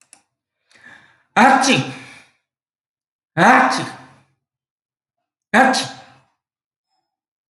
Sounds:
Sneeze